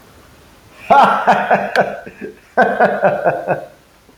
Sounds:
Laughter